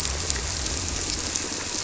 {"label": "biophony", "recorder": "SoundTrap 300"}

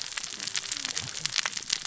{"label": "biophony, cascading saw", "recorder": "SoundTrap 600 or HydroMoth"}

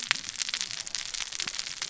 {"label": "biophony, cascading saw", "recorder": "SoundTrap 600 or HydroMoth"}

